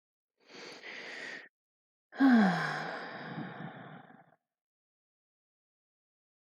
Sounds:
Sigh